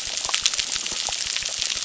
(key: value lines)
label: biophony, crackle
recorder: SoundTrap 600